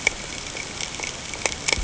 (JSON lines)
{"label": "ambient", "recorder": "HydroMoth"}